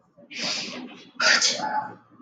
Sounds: Sneeze